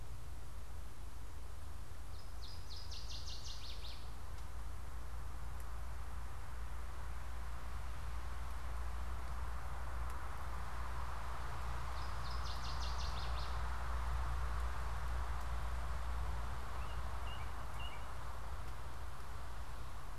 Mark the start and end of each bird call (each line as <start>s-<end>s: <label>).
2.0s-4.1s: Northern Waterthrush (Parkesia noveboracensis)
11.7s-13.7s: Northern Waterthrush (Parkesia noveboracensis)
16.6s-18.1s: American Robin (Turdus migratorius)